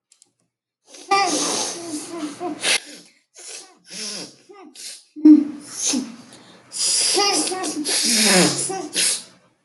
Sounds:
Sniff